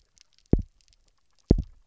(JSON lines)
{"label": "biophony, double pulse", "recorder": "SoundTrap 300"}